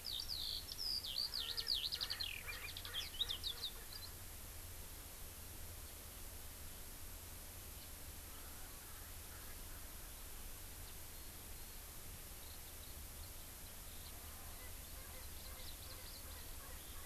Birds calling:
Erckel's Francolin (Pternistis erckelii)
Eurasian Skylark (Alauda arvensis)

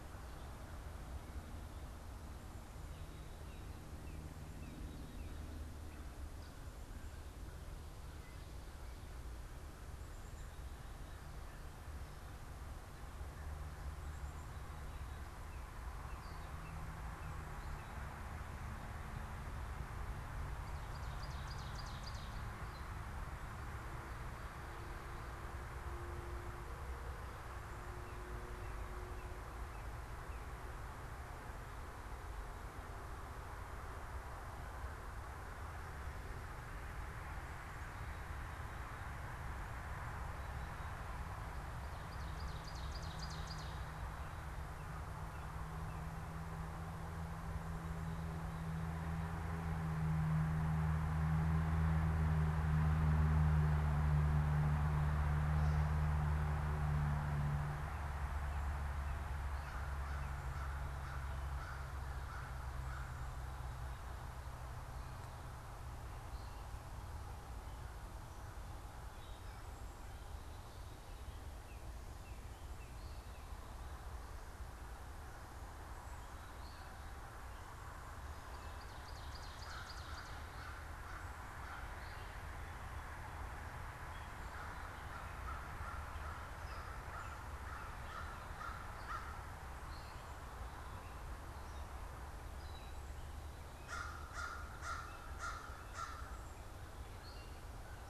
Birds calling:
American Crow (Corvus brachyrhynchos)
Northern Cardinal (Cardinalis cardinalis)
Ovenbird (Seiurus aurocapilla)
Gray Catbird (Dumetella carolinensis)

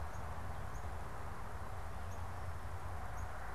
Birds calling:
Northern Cardinal (Cardinalis cardinalis)

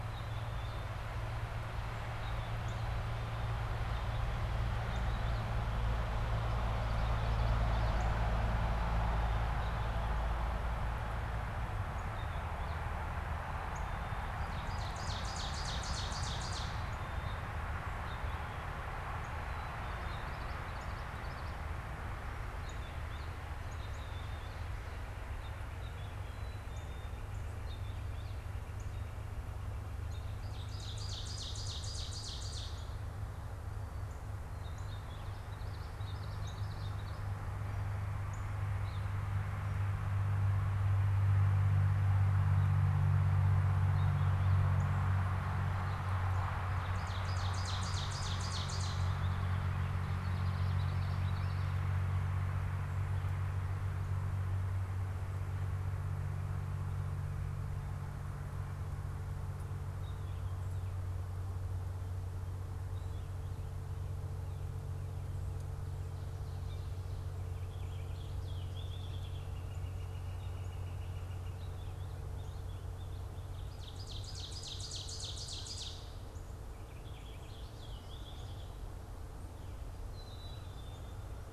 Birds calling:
Ovenbird (Seiurus aurocapilla)
Black-capped Chickadee (Poecile atricapillus)
Common Yellowthroat (Geothlypis trichas)
Northern Cardinal (Cardinalis cardinalis)
Purple Finch (Haemorhous purpureus)
Northern Flicker (Colaptes auratus)

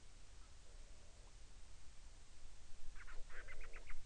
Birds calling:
Band-rumped Storm-Petrel (Hydrobates castro)

